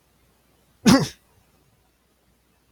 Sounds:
Sneeze